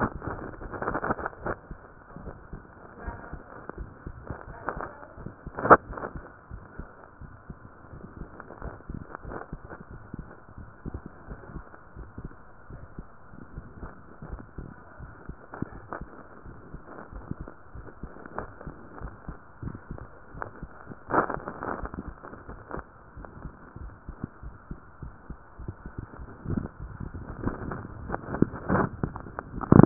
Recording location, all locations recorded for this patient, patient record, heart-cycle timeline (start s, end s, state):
tricuspid valve (TV)
aortic valve (AV)+pulmonary valve (PV)+tricuspid valve (TV)+mitral valve (MV)
#Age: Child
#Sex: Female
#Height: 130.0 cm
#Weight: 36.9 kg
#Pregnancy status: False
#Murmur: Present
#Murmur locations: aortic valve (AV)+mitral valve (MV)+pulmonary valve (PV)+tricuspid valve (TV)
#Most audible location: pulmonary valve (PV)
#Systolic murmur timing: Early-systolic
#Systolic murmur shape: Plateau
#Systolic murmur grading: II/VI
#Systolic murmur pitch: Low
#Systolic murmur quality: Blowing
#Diastolic murmur timing: nan
#Diastolic murmur shape: nan
#Diastolic murmur grading: nan
#Diastolic murmur pitch: nan
#Diastolic murmur quality: nan
#Outcome: Abnormal
#Campaign: 2015 screening campaign
0.00	2.22	unannotated
2.22	2.38	S1
2.38	2.49	systole
2.49	2.61	S2
2.61	3.02	diastole
3.02	3.13	S1
3.13	3.30	systole
3.30	3.39	S2
3.39	3.76	diastole
3.76	3.85	S1
3.85	4.04	systole
4.04	4.14	S2
4.14	4.46	diastole
4.46	4.55	S1
4.55	4.74	systole
4.74	4.82	S2
4.82	5.16	diastole
5.16	5.25	S1
5.25	5.43	systole
5.43	5.51	S2
5.51	5.87	diastole
5.87	5.95	S1
5.95	6.14	systole
6.14	6.22	S2
6.22	6.50	diastole
6.50	6.59	S1
6.59	6.77	systole
6.77	6.86	S2
6.86	7.19	diastole
7.19	7.29	S1
7.29	7.46	systole
7.46	7.56	S2
7.56	7.90	diastole
7.90	8.02	S1
8.02	29.86	unannotated